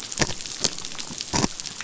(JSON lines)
{"label": "biophony", "recorder": "SoundTrap 500"}